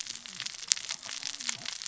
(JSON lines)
{"label": "biophony, cascading saw", "recorder": "SoundTrap 600 or HydroMoth"}